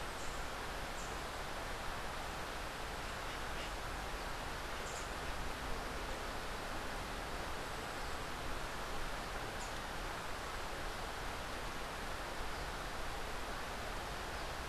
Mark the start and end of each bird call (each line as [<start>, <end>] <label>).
[0.00, 1.50] Rufous-capped Warbler (Basileuterus rufifrons)
[4.70, 5.10] Rufous-capped Warbler (Basileuterus rufifrons)
[9.40, 10.00] Rufous-capped Warbler (Basileuterus rufifrons)